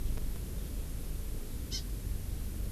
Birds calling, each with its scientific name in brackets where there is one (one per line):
Hawaii Amakihi (Chlorodrepanis virens)